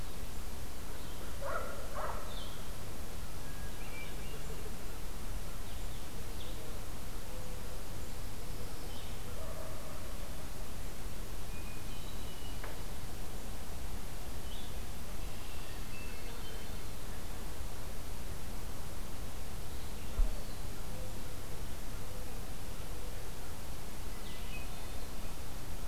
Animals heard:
Hermit Thrush (Catharus guttatus), Blue-headed Vireo (Vireo solitarius)

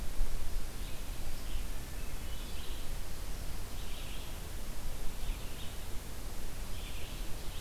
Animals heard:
Hermit Thrush (Catharus guttatus), Red-eyed Vireo (Vireo olivaceus)

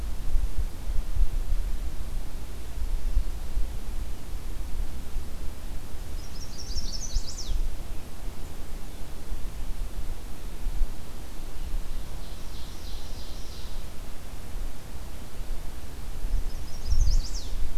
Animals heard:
Chestnut-sided Warbler (Setophaga pensylvanica), Ovenbird (Seiurus aurocapilla)

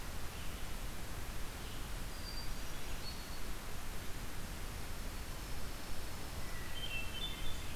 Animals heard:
Hermit Thrush (Catharus guttatus), Dark-eyed Junco (Junco hyemalis), Red-eyed Vireo (Vireo olivaceus)

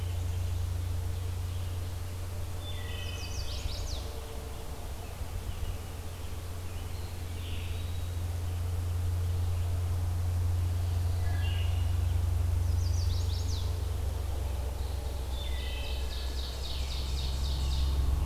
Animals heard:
Ovenbird (Seiurus aurocapilla), Eastern Wood-Pewee (Contopus virens), Wood Thrush (Hylocichla mustelina), Chestnut-sided Warbler (Setophaga pensylvanica)

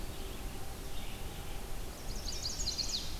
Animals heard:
Red-eyed Vireo (Vireo olivaceus), Chestnut-sided Warbler (Setophaga pensylvanica)

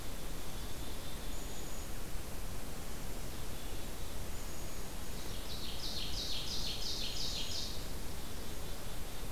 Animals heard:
Ovenbird (Seiurus aurocapilla), Black-capped Chickadee (Poecile atricapillus), unidentified call

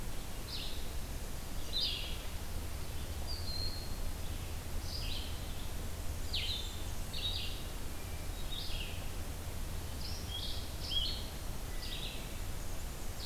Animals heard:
Red-eyed Vireo (Vireo olivaceus), Blue-headed Vireo (Vireo solitarius), Blackburnian Warbler (Setophaga fusca), Broad-winged Hawk (Buteo platypterus)

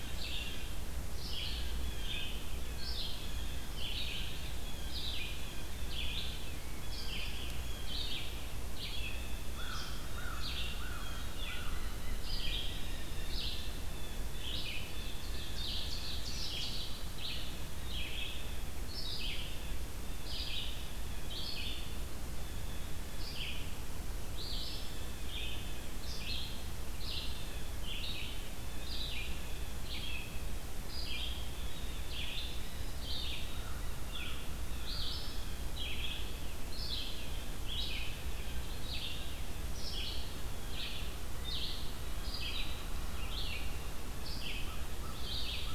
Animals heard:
American Crow (Corvus brachyrhynchos), Red-eyed Vireo (Vireo olivaceus), Blue Jay (Cyanocitta cristata), Ovenbird (Seiurus aurocapilla)

